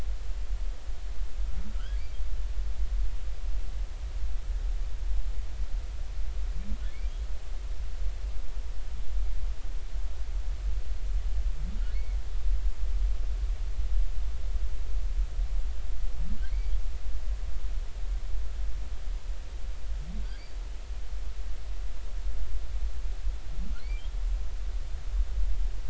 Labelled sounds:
1.8	2.0	humpback whale, 1.3 to 1.7 kHz
16.5	16.7	humpback whale, 2.0 to 4.6 kHz
20.2	20.6	humpback whale, 4.4 to 4.8 kHz

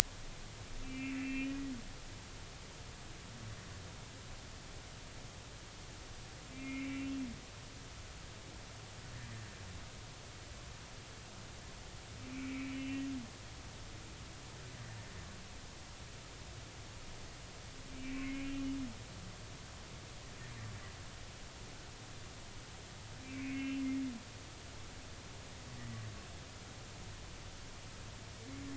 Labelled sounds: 0.8	1.6	humpback whale, 1.8 to 2.8 kHz
6.5	7.2	humpback whale, 2.0 to 2.8 kHz
12.3	13.1	humpback whale, 2.0 to 3.0 kHz
17.9	18.5	humpback whale, 2.0 to 2.4 kHz
23.2	23.8	humpback whale, 2.1 to 3.0 kHz
25.8	26.0	humpback whale, 1.9 to 2.0 kHz

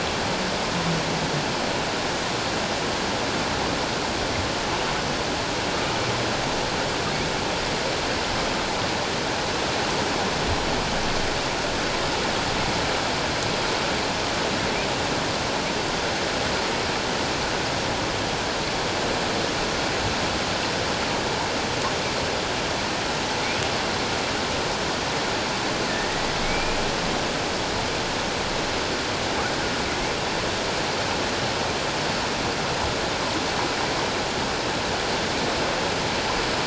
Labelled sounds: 25.9	26.8	humpback whale, 1.7 to 2.5 kHz

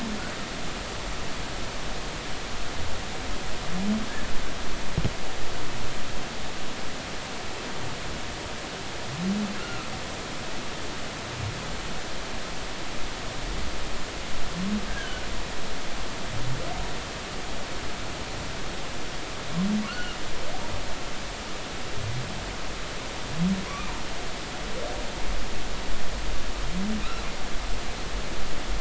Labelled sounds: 10.6	10.9	humpback whale, 1.2 to 1.5 kHz
14.9	15.2	humpback whale, 1.4 to 1.7 kHz
19.9	20.2	humpback whale, 1.3 to 3.0 kHz
23.7	23.9	humpback whale, 0.96 to 2.5 kHz

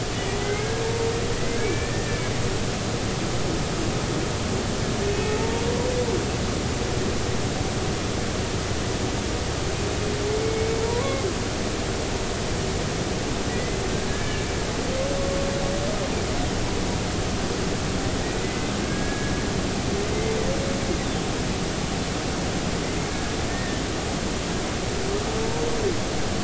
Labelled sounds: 0.4	0.7	humpback whale, 2.0 to 2.3 kHz
1.6	2.2	humpback whale, 1.7 to 2.4 kHz
5.1	5.5	humpback whale, 0.83 to 2.6 kHz
10.4	11.3	humpback whale, 0.90 to 2.3 kHz
13.5	13.8	humpback whale, 1.9 to 2.1 kHz
14.1	14.5	humpback whale, 1.6 to 1.8 kHz
18.4	19.3	humpback whale, 1.6 to 2.1 kHz
23.1	23.8	humpback whale, 1.5 to 1.9 kHz

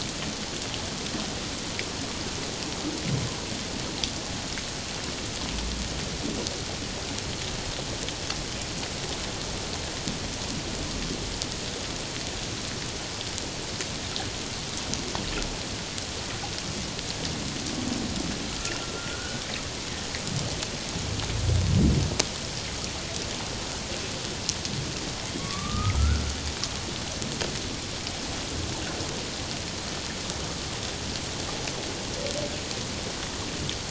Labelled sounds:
18.5	19.4	humpback whale, 1.2 to 1.6 kHz
25.4	26.2	humpback whale, 1.1 to 1.5 kHz

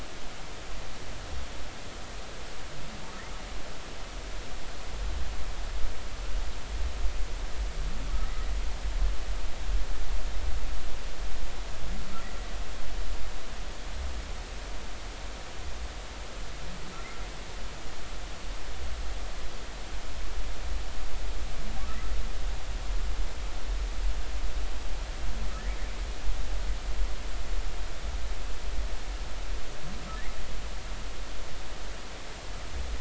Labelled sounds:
25.6	25.9	humpback whale, 1.6 to 2.2 kHz

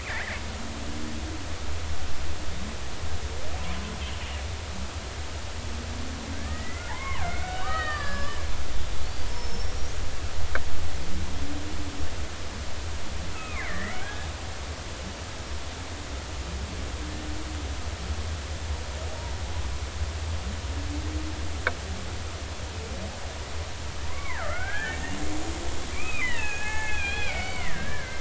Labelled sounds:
0.0	0.4	killer whale, Bigg's (transient), 1.5 to 2.8 kHz
6.3	8.4	killer whale, Bigg's (transient), 0.80 to 5.2 kHz
9.3	9.9	killer whale, Bigg's (transient), 5.2 to 5.8 kHz
13.3	14.3	killer whale, Bigg's (transient), 1.0 to 2.8 kHz
24.1	28.1	killer whale, Bigg's (transient), 0.80 to 6.6 kHz

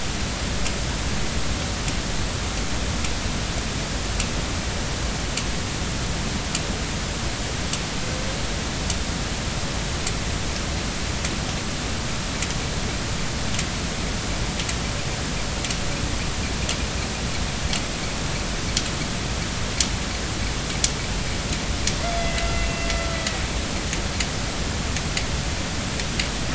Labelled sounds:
22.0	23.4	killer whale, northern resident, A clan, AB subclan, B01 pod, call N18, 1.3 to 4.9 kHz

